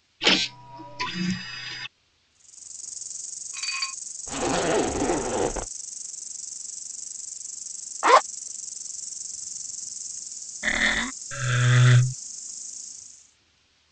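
At 0.2 seconds, there is the sound of a printer. Then at 2.28 seconds, a quiet insect can be heard, fading in, and fading out by 13.43 seconds. Over it, at 3.52 seconds, dishes are heard. Next, at 4.26 seconds, you can hear a zipper. After that, at 8.02 seconds, a zipper can be heard. Following that, at 10.62 seconds, the sound of wood comes through. Then at 11.3 seconds, you can hear wood. A faint steady noise continues in the background.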